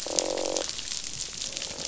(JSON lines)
{"label": "biophony, croak", "recorder": "SoundTrap 500"}